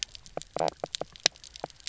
{"label": "biophony, knock croak", "recorder": "SoundTrap 300"}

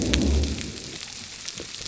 {"label": "biophony", "recorder": "SoundTrap 300"}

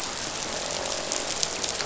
{"label": "biophony, croak", "recorder": "SoundTrap 500"}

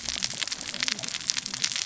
{"label": "biophony, cascading saw", "recorder": "SoundTrap 600 or HydroMoth"}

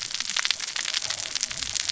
{"label": "biophony, cascading saw", "recorder": "SoundTrap 600 or HydroMoth"}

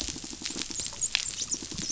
{"label": "biophony", "recorder": "SoundTrap 500"}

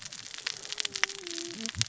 {"label": "biophony, cascading saw", "recorder": "SoundTrap 600 or HydroMoth"}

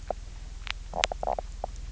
{"label": "biophony, knock croak", "recorder": "SoundTrap 300"}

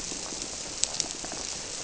{"label": "biophony", "recorder": "SoundTrap 300"}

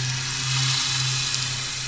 {"label": "anthrophony, boat engine", "recorder": "SoundTrap 500"}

